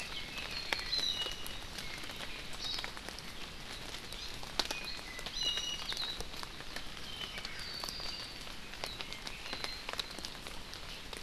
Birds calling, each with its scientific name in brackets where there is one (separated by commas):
Iiwi (Drepanis coccinea), Apapane (Himatione sanguinea)